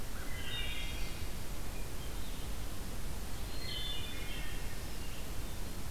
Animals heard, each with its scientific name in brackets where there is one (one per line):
Hermit Thrush (Catharus guttatus)
Wood Thrush (Hylocichla mustelina)